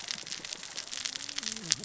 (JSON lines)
{"label": "biophony, cascading saw", "recorder": "SoundTrap 600 or HydroMoth"}